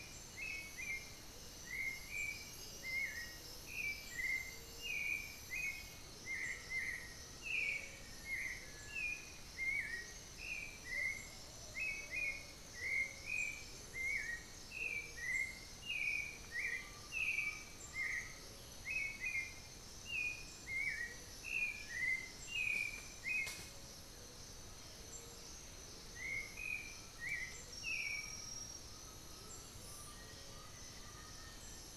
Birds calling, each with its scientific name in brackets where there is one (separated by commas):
Black-billed Thrush (Turdus ignobilis), Black-faced Antthrush (Formicarius analis), Plumbeous Pigeon (Patagioenas plumbea), Undulated Tinamou (Crypturellus undulatus), Amazonian Motmot (Momotus momota)